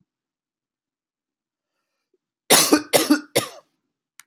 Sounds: Cough